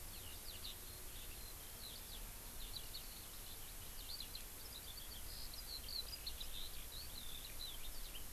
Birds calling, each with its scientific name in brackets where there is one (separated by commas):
Eurasian Skylark (Alauda arvensis)